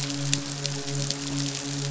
{"label": "biophony, midshipman", "recorder": "SoundTrap 500"}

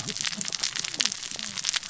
{"label": "biophony, cascading saw", "recorder": "SoundTrap 600 or HydroMoth"}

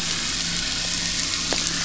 {"label": "anthrophony, boat engine", "recorder": "SoundTrap 500"}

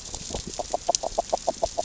{"label": "biophony, grazing", "recorder": "SoundTrap 600 or HydroMoth"}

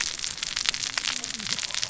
{"label": "biophony, cascading saw", "recorder": "SoundTrap 600 or HydroMoth"}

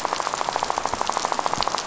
{"label": "biophony, rattle", "recorder": "SoundTrap 500"}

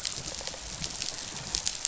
{"label": "biophony, rattle response", "recorder": "SoundTrap 500"}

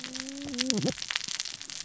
{"label": "biophony, cascading saw", "recorder": "SoundTrap 600 or HydroMoth"}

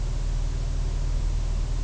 {"label": "biophony", "recorder": "SoundTrap 300"}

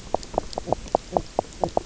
{"label": "biophony, knock croak", "recorder": "SoundTrap 300"}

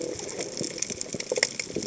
{"label": "biophony", "recorder": "HydroMoth"}
{"label": "biophony, chatter", "recorder": "HydroMoth"}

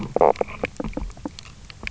{"label": "biophony, stridulation", "recorder": "SoundTrap 300"}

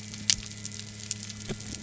{"label": "anthrophony, boat engine", "recorder": "SoundTrap 300"}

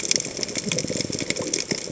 {"label": "biophony", "recorder": "HydroMoth"}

